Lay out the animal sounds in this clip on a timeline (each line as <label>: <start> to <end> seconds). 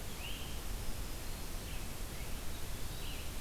Great Crested Flycatcher (Myiarchus crinitus): 0.0 to 0.5 seconds
Black-throated Green Warbler (Setophaga virens): 0.6 to 1.8 seconds
Red-eyed Vireo (Vireo olivaceus): 1.2 to 3.4 seconds
Eastern Wood-Pewee (Contopus virens): 2.4 to 3.4 seconds